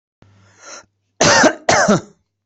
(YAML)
expert_labels:
- quality: good
  cough_type: wet
  dyspnea: false
  wheezing: false
  stridor: false
  choking: false
  congestion: false
  nothing: true
  diagnosis: upper respiratory tract infection
  severity: mild
age: 51
gender: male
respiratory_condition: false
fever_muscle_pain: false
status: healthy